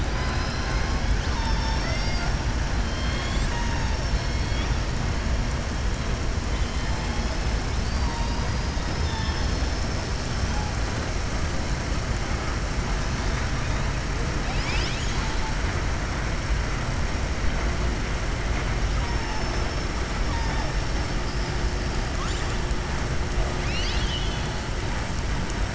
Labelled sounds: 6.5	7.1	killer whale, southern resident, 2.1 to 3.8 kHz
19.2	19.8	killer whale, southern resident, 4.5 to 6.3 kHz
23.5	24.5	killer whale, southern resident, 2.1 to 6.2 kHz

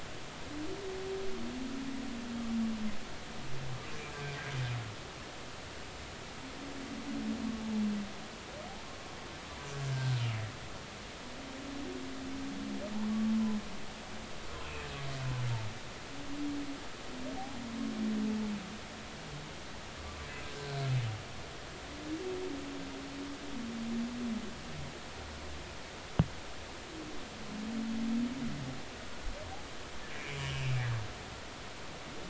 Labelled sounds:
9.8	10.1	humpback whale, 1.5 to 1.7 kHz
20.5	20.8	humpback whale, 1.5 to 1.6 kHz
30.2	30.7	humpback whale, 2.1 to 3.1 kHz

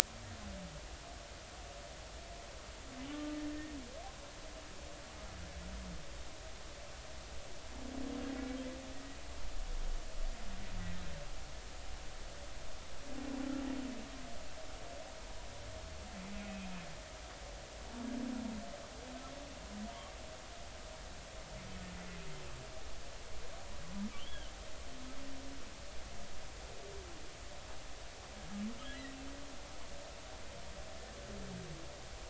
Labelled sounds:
3.1	3.8	humpback whale, 1.1 to 1.9 kHz
24.2	24.5	humpback whale, 2.6 to 3.5 kHz

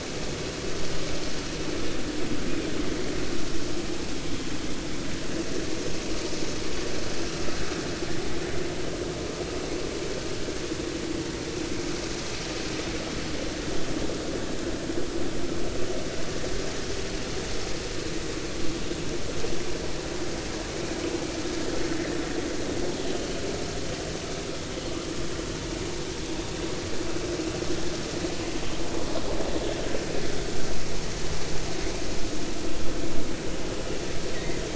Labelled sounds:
34.3	34.6	killer whale, offshore, 1.8 to 2.2 kHz

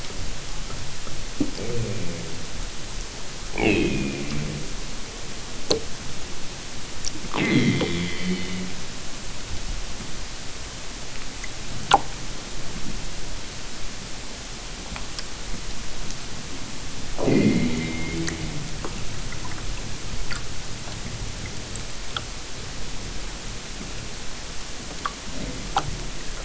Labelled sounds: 3.6	4.6	killer whale, southern Alaska resident, 0 to 5.1 kHz
7.3	8.8	killer whale, southern Alaska resident, 0.18 to 6.5 kHz
17.2	18.6	killer whale, southern Alaska resident, 0 to 5.2 kHz

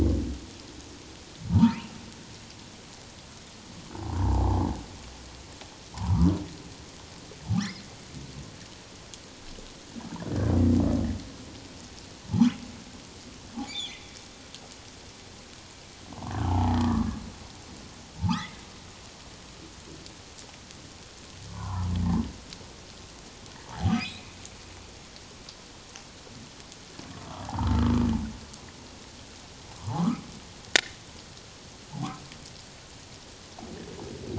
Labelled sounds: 1.5	1.9	humpback whale, 0.84 to 3.0 kHz
3.9	4.7	humpback whale, 0.78 to 1.1 kHz
5.9	6.3	humpback whale, 0.78 to 1.2 kHz
12.3	12.6	humpback whale, 2.7 to 3.5 kHz
13.7	14.0	humpback whale, 2.2 to 3.7 kHz
16.4	17.2	humpback whale, 0.78 to 2.0 kHz
18.2	18.6	humpback whale, 0.81 to 2.2 kHz
21.5	21.9	humpback whale, 0.78 to 1.5 kHz
23.7	24.3	humpback whale, 0.78 to 2.6 kHz
27.5	27.7	humpback whale, 0.78 to 1.4 kHz
29.8	31.0	humpback whale, 0.78 to 2.2 kHz
31.9	32.2	humpback whale, 0.78 to 1.0 kHz

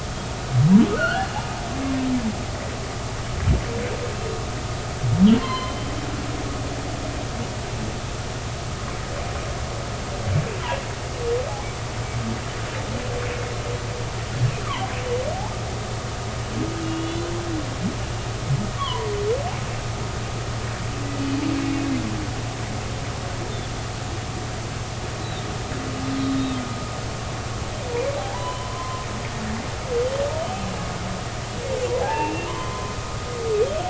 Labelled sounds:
0.9	1.3	humpback whale, 1.2 to 3.1 kHz
5.4	5.8	humpback whale, 0.96 to 4.3 kHz
16.8	17.3	humpback whale, 2.8 to 3.6 kHz
18.8	19.1	humpback whale, 0.93 to 1.2 kHz
25.2	26.6	humpback whale, 3.6 to 4.1 kHz
28.2	29.1	humpback whale, 0.80 to 3.1 kHz
32.0	32.9	humpback whale, 0.80 to 2.8 kHz

